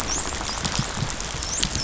{"label": "biophony, dolphin", "recorder": "SoundTrap 500"}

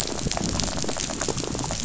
{"label": "biophony, rattle", "recorder": "SoundTrap 500"}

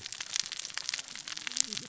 {"label": "biophony, cascading saw", "recorder": "SoundTrap 600 or HydroMoth"}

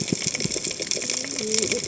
{"label": "biophony, cascading saw", "recorder": "HydroMoth"}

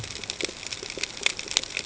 {"label": "ambient", "recorder": "HydroMoth"}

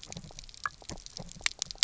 {"label": "biophony, knock croak", "recorder": "SoundTrap 300"}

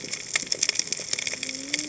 {"label": "biophony, cascading saw", "recorder": "HydroMoth"}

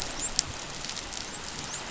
{"label": "biophony, dolphin", "recorder": "SoundTrap 500"}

